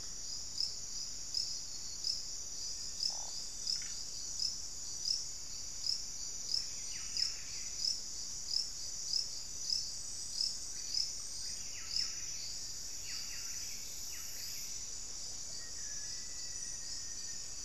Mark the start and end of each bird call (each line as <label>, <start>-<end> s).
Buff-breasted Wren (Cantorchilus leucotis), 6.5-17.6 s
Black-faced Antthrush (Formicarius analis), 15.3-17.6 s